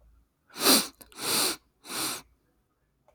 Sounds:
Sniff